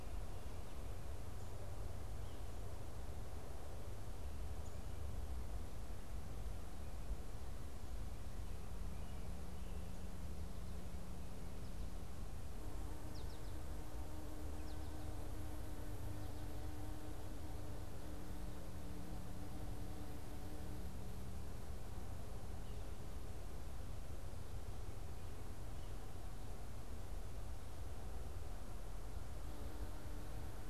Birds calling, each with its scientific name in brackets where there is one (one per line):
American Goldfinch (Spinus tristis)